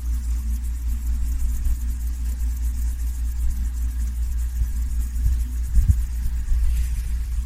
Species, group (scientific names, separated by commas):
Chorthippus apricarius, Orthoptera